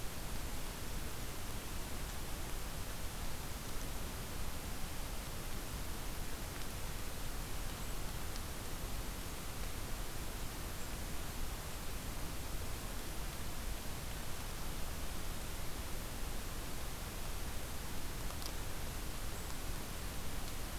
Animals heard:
forest ambience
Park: Acadia National Park